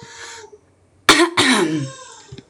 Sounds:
Throat clearing